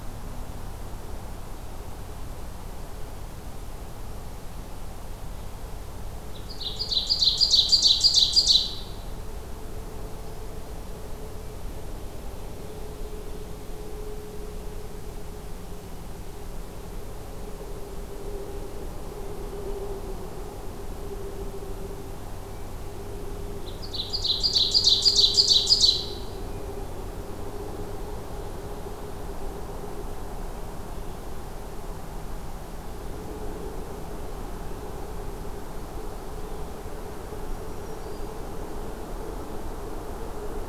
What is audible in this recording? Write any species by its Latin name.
Seiurus aurocapilla, Setophaga virens